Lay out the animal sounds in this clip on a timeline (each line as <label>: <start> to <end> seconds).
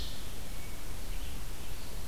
Red-eyed Vireo (Vireo olivaceus): 0.0 to 2.1 seconds